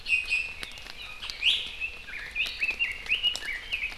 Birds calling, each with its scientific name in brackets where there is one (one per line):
Red-billed Leiothrix (Leiothrix lutea)
Iiwi (Drepanis coccinea)